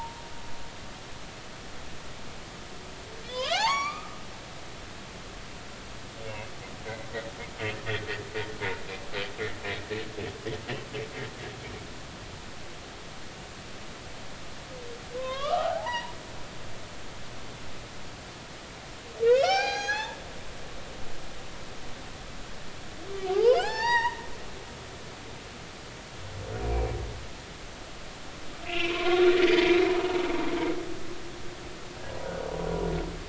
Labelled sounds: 0.3	1.1	humpback whale, 0.80 to 1.0 kHz
3.2	4.9	humpback whale, 0.80 to 6.8 kHz
6.3	6.5	humpback whale, 2.6 to 2.8 kHz
7.6	7.9	humpback whale, 2.4 to 2.8 kHz
15.2	16.1	humpback whale, 0.80 to 4.0 kHz
19.2	20.2	humpback whale, 0.80 to 6.7 kHz
23.3	24.2	humpback whale, 0.80 to 5.8 kHz
28.6	29.7	humpback whale, 0.96 to 3.8 kHz
30.0	30.2	humpback whale, 0.83 to 1.1 kHz

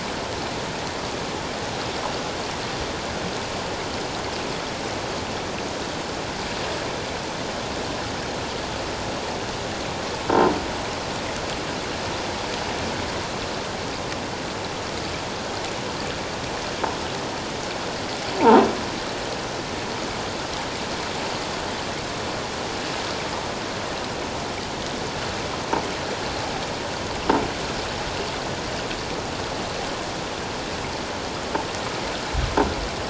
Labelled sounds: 18.4	18.7	croaking sound likely from a nearby submerged object, 0.78 to 1.1 kHz

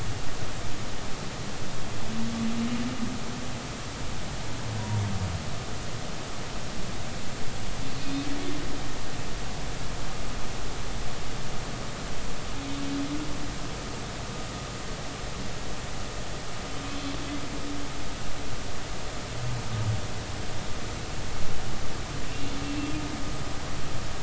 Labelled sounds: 4.8	5.0	humpback whale, 0.90 to 1.0 kHz
8.0	8.3	humpback whale, 2.4 to 2.6 kHz
22.3	22.5	humpback whale, 2.7 to 2.8 kHz

